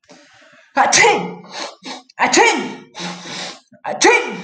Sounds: Sneeze